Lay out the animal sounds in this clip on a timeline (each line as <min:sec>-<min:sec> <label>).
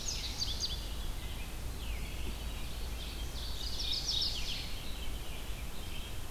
0:00.0-0:01.0 Indigo Bunting (Passerina cyanea)
0:00.0-0:06.3 Red-eyed Vireo (Vireo olivaceus)
0:02.7-0:04.6 Ovenbird (Seiurus aurocapilla)
0:03.5-0:04.8 Mourning Warbler (Geothlypis philadelphia)